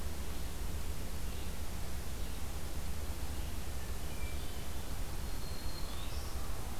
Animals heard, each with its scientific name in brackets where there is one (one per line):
Black-throated Green Warbler (Setophaga virens)
Hermit Thrush (Catharus guttatus)
Red-eyed Vireo (Vireo olivaceus)